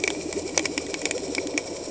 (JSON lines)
{"label": "anthrophony, boat engine", "recorder": "HydroMoth"}